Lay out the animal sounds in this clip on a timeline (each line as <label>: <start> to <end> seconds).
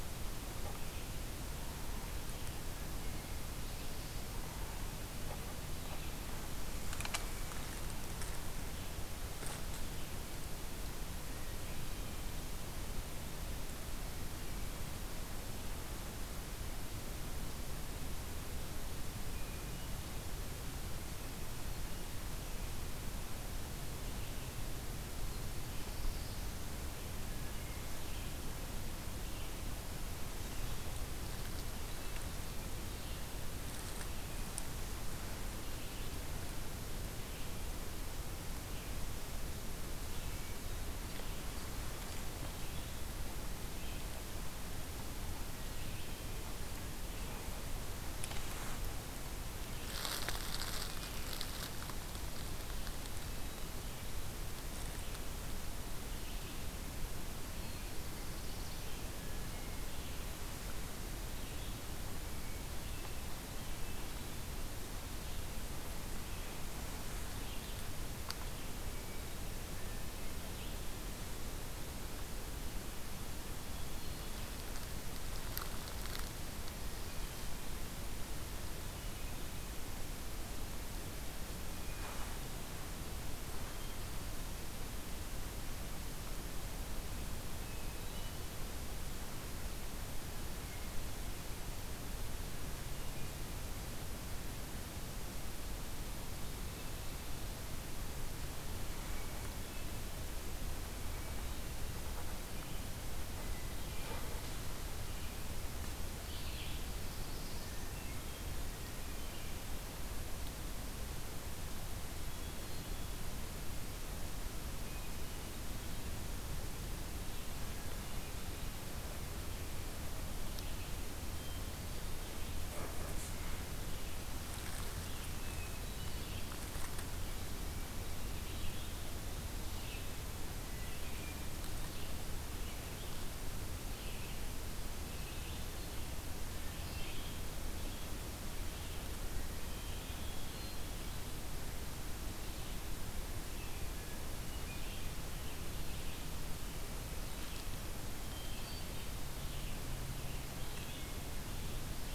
Hermit Thrush (Catharus guttatus): 19.2 to 20.1 seconds
Red-eyed Vireo (Vireo olivaceus): 21.9 to 47.7 seconds
Black-throated Blue Warbler (Setophaga caerulescens): 25.1 to 26.6 seconds
Hermit Thrush (Catharus guttatus): 53.1 to 53.8 seconds
Black-throated Blue Warbler (Setophaga caerulescens): 57.2 to 59.1 seconds
Hermit Thrush (Catharus guttatus): 59.3 to 59.9 seconds
Hermit Thrush (Catharus guttatus): 68.8 to 69.4 seconds
Hermit Thrush (Catharus guttatus): 73.6 to 74.6 seconds
Hermit Thrush (Catharus guttatus): 81.6 to 84.5 seconds
Hermit Thrush (Catharus guttatus): 87.3 to 88.6 seconds
Hermit Thrush (Catharus guttatus): 90.4 to 91.1 seconds
Hermit Thrush (Catharus guttatus): 98.7 to 99.9 seconds
Hermit Thrush (Catharus guttatus): 103.2 to 104.5 seconds
Red-eyed Vireo (Vireo olivaceus): 106.2 to 106.9 seconds
Black-throated Blue Warbler (Setophaga caerulescens): 106.6 to 107.9 seconds
Hermit Thrush (Catharus guttatus): 107.7 to 109.7 seconds
Hermit Thrush (Catharus guttatus): 112.1 to 113.2 seconds
Hermit Thrush (Catharus guttatus): 114.8 to 115.9 seconds
Hermit Thrush (Catharus guttatus): 121.2 to 122.3 seconds
Hermit Thrush (Catharus guttatus): 125.1 to 126.5 seconds
Red-eyed Vireo (Vireo olivaceus): 125.9 to 152.1 seconds
Hermit Thrush (Catharus guttatus): 139.4 to 141.0 seconds
American Robin (Turdus migratorius): 143.9 to 146.9 seconds
Hermit Thrush (Catharus guttatus): 148.2 to 149.3 seconds